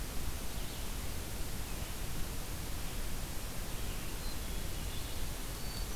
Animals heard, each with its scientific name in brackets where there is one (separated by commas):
Red-eyed Vireo (Vireo olivaceus)